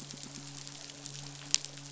{"label": "biophony", "recorder": "SoundTrap 500"}
{"label": "biophony, midshipman", "recorder": "SoundTrap 500"}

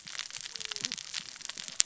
{"label": "biophony, cascading saw", "recorder": "SoundTrap 600 or HydroMoth"}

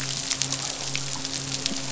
{"label": "biophony, midshipman", "recorder": "SoundTrap 500"}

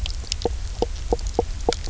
{"label": "biophony, knock croak", "recorder": "SoundTrap 300"}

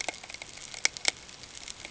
{"label": "ambient", "recorder": "HydroMoth"}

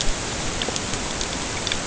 {"label": "ambient", "recorder": "HydroMoth"}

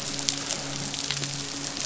{"label": "biophony, midshipman", "recorder": "SoundTrap 500"}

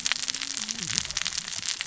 {"label": "biophony, cascading saw", "recorder": "SoundTrap 600 or HydroMoth"}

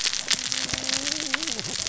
{"label": "biophony, cascading saw", "recorder": "SoundTrap 600 or HydroMoth"}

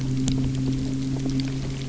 {"label": "anthrophony, boat engine", "recorder": "SoundTrap 300"}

